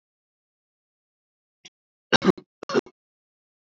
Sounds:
Cough